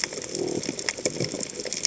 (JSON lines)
{"label": "biophony", "recorder": "HydroMoth"}